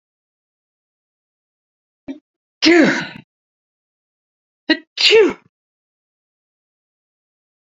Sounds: Sneeze